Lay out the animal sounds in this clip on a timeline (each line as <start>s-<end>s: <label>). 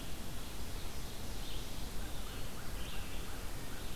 0.0s-4.0s: Red-eyed Vireo (Vireo olivaceus)
0.6s-2.0s: Ovenbird (Seiurus aurocapilla)
1.7s-2.9s: Eastern Wood-Pewee (Contopus virens)
2.0s-4.0s: American Crow (Corvus brachyrhynchos)